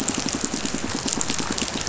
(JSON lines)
{"label": "biophony, pulse", "recorder": "SoundTrap 500"}